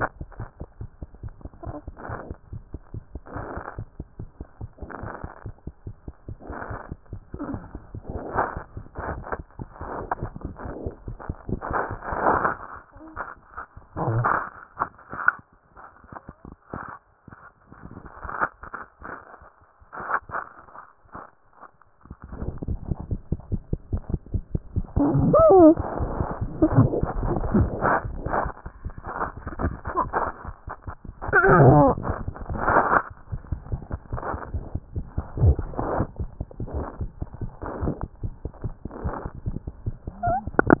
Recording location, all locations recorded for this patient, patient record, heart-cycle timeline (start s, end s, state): mitral valve (MV)
mitral valve (MV)
#Age: Infant
#Sex: Male
#Height: 69.0 cm
#Weight: 8.2 kg
#Pregnancy status: False
#Murmur: Absent
#Murmur locations: nan
#Most audible location: nan
#Systolic murmur timing: nan
#Systolic murmur shape: nan
#Systolic murmur grading: nan
#Systolic murmur pitch: nan
#Systolic murmur quality: nan
#Diastolic murmur timing: nan
#Diastolic murmur shape: nan
#Diastolic murmur grading: nan
#Diastolic murmur pitch: nan
#Diastolic murmur quality: nan
#Outcome: Abnormal
#Campaign: 2014 screening campaign
0.00	0.28	unannotated
0.28	0.40	diastole
0.40	0.48	S1
0.48	0.62	systole
0.62	0.68	S2
0.68	0.81	diastole
0.81	0.90	S1
0.90	1.02	systole
1.02	1.10	S2
1.10	1.24	diastole
1.24	1.32	S1
1.32	1.44	systole
1.44	1.52	S2
1.52	1.65	diastole
1.65	1.75	S1
1.75	1.88	systole
1.88	1.96	S2
1.96	2.10	diastole
2.10	2.20	S1
2.20	2.30	systole
2.30	2.38	S2
2.38	2.54	diastole
2.54	2.62	S1
2.62	2.74	systole
2.74	2.82	S2
2.82	2.96	diastole
2.96	3.04	S1
3.04	3.14	systole
3.14	3.22	S2
3.22	3.36	diastole
3.36	3.46	S1
3.46	3.56	systole
3.56	3.64	S2
3.64	3.78	diastole
3.78	3.88	S1
3.88	4.00	systole
4.00	4.08	S2
4.08	4.20	diastole
4.20	4.30	S1
4.30	4.40	systole
4.40	4.48	S2
4.48	4.62	diastole
4.62	4.70	S1
4.70	4.82	systole
4.82	4.90	S2
4.90	5.04	diastole
5.04	5.12	S1
5.12	5.24	systole
5.24	5.32	S2
5.32	5.46	diastole
5.46	5.54	S1
5.54	5.66	systole
5.66	5.74	S2
5.74	5.88	diastole
5.88	5.96	S1
5.96	6.08	systole
6.08	6.16	S2
6.16	6.23	diastole
6.23	40.80	unannotated